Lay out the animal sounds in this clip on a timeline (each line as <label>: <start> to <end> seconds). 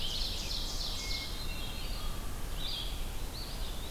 Ovenbird (Seiurus aurocapilla): 0.0 to 1.5 seconds
Blue-headed Vireo (Vireo solitarius): 0.0 to 3.9 seconds
Red-eyed Vireo (Vireo olivaceus): 0.0 to 3.9 seconds
Hermit Thrush (Catharus guttatus): 1.0 to 2.2 seconds
Eastern Wood-Pewee (Contopus virens): 3.3 to 3.9 seconds